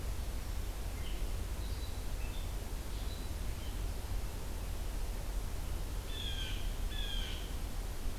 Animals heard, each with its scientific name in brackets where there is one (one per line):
Red-eyed Vireo (Vireo olivaceus)
Blue Jay (Cyanocitta cristata)